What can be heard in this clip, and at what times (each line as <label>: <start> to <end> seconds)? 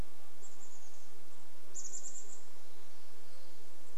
Chestnut-backed Chickadee call: 0 to 4 seconds
insect buzz: 0 to 4 seconds